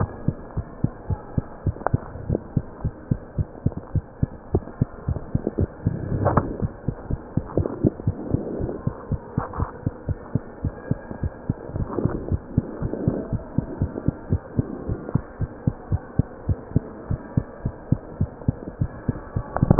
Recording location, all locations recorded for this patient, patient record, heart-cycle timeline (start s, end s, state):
mitral valve (MV)
aortic valve (AV)+pulmonary valve (PV)+tricuspid valve (TV)+mitral valve (MV)
#Age: Child
#Sex: Female
#Height: 96.0 cm
#Weight: 13.9 kg
#Pregnancy status: False
#Murmur: Absent
#Murmur locations: nan
#Most audible location: nan
#Systolic murmur timing: nan
#Systolic murmur shape: nan
#Systolic murmur grading: nan
#Systolic murmur pitch: nan
#Systolic murmur quality: nan
#Diastolic murmur timing: nan
#Diastolic murmur shape: nan
#Diastolic murmur grading: nan
#Diastolic murmur pitch: nan
#Diastolic murmur quality: nan
#Outcome: Normal
#Campaign: 2015 screening campaign
0.00	0.32	unannotated
0.32	0.56	diastole
0.56	0.66	S1
0.66	0.78	systole
0.78	0.92	S2
0.92	1.08	diastole
1.08	1.20	S1
1.20	1.32	systole
1.32	1.46	S2
1.46	1.64	diastole
1.64	1.76	S1
1.76	1.90	systole
1.90	2.02	S2
2.02	2.22	diastole
2.22	2.38	S1
2.38	2.52	systole
2.52	2.64	S2
2.64	2.82	diastole
2.82	2.94	S1
2.94	3.10	systole
3.10	3.20	S2
3.20	3.36	diastole
3.36	3.48	S1
3.48	3.64	systole
3.64	3.74	S2
3.74	3.92	diastole
3.92	4.04	S1
4.04	4.18	systole
4.18	4.32	S2
4.32	4.52	diastole
4.52	4.64	S1
4.64	4.80	systole
4.80	4.90	S2
4.90	5.06	diastole
5.06	5.20	S1
5.20	5.32	systole
5.32	5.42	S2
5.42	5.58	diastole
5.58	5.72	S1
5.72	5.86	systole
5.86	5.98	S2
5.98	6.58	unannotated
6.58	6.72	S1
6.72	6.86	systole
6.86	6.96	S2
6.96	7.08	diastole
7.08	7.19	S1
7.19	7.36	systole
7.36	7.45	S2
7.45	8.05	unannotated
8.05	8.15	S1
8.15	8.32	systole
8.32	8.42	S2
8.42	8.58	diastole
8.58	8.70	S1
8.70	8.84	systole
8.84	8.94	S2
8.94	9.10	diastole
9.10	9.22	S1
9.22	9.36	systole
9.36	9.46	S2
9.46	9.60	diastole
9.60	9.72	S1
9.72	9.84	systole
9.84	9.94	S2
9.94	10.07	diastole
10.07	10.17	S1
10.17	10.32	systole
10.32	10.42	S2
10.42	10.62	diastole
10.62	10.74	S1
10.74	10.90	systole
10.90	11.02	S2
11.02	11.22	diastole
11.22	11.32	S1
11.32	11.48	systole
11.48	11.58	S2
11.58	11.74	diastole
11.74	11.90	S1
11.90	11.98	systole
11.98	12.12	S2
12.12	12.28	diastole
12.28	12.44	S1
12.44	12.56	systole
12.56	12.66	S2
12.66	12.80	diastole
12.80	12.92	S1
12.92	13.02	systole
13.02	13.16	S2
13.16	13.30	diastole
13.30	13.42	S1
13.42	13.56	systole
13.56	13.64	S2
13.64	13.80	diastole
13.80	13.92	S1
13.92	14.02	systole
14.02	14.16	S2
14.16	14.30	diastole
14.30	14.40	S1
14.40	14.56	systole
14.56	14.68	S2
14.68	14.86	diastole
14.86	15.00	S1
15.00	15.13	systole
15.13	15.22	S2
15.22	15.38	diastole
15.38	15.52	S1
15.52	15.64	systole
15.64	15.74	S2
15.74	15.90	diastole
15.90	16.02	S1
16.02	16.16	systole
16.16	16.30	S2
16.30	16.48	diastole
16.48	16.60	S1
16.60	16.74	systole
16.74	16.88	S2
16.88	17.08	diastole
17.08	17.22	S1
17.22	17.36	systole
17.36	17.48	S2
17.48	17.64	diastole
17.64	17.74	S1
17.74	17.88	systole
17.88	18.02	S2
18.02	18.18	diastole
18.18	18.30	S1
18.30	18.46	systole
18.46	18.60	S2
18.60	18.80	diastole
18.80	18.92	S1
18.92	19.06	systole
19.06	19.16	S2
19.16	19.34	diastole
19.34	19.46	S1
19.46	19.79	unannotated